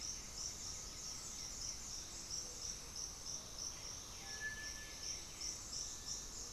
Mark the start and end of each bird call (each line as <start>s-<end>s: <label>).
0.0s-6.5s: Gray-fronted Dove (Leptotila rufaxilla)
0.0s-6.5s: White-winged Becard (Pachyramphus polychopterus)